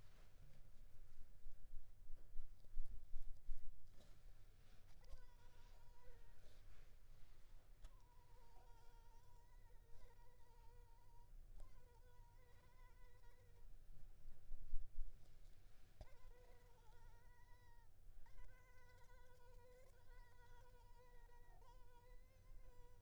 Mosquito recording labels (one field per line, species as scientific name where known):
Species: Anopheles arabiensis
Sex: female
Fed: unfed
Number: one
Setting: cup